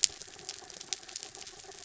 {"label": "anthrophony, mechanical", "recorder": "SoundTrap 300"}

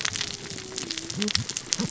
{"label": "biophony, cascading saw", "recorder": "SoundTrap 600 or HydroMoth"}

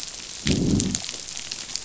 {"label": "biophony, growl", "recorder": "SoundTrap 500"}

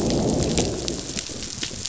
{"label": "biophony, growl", "recorder": "SoundTrap 500"}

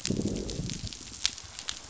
{"label": "biophony, growl", "recorder": "SoundTrap 500"}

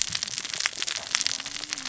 {"label": "biophony, cascading saw", "recorder": "SoundTrap 600 or HydroMoth"}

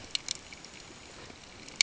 {"label": "ambient", "recorder": "HydroMoth"}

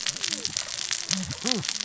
{"label": "biophony, cascading saw", "recorder": "SoundTrap 600 or HydroMoth"}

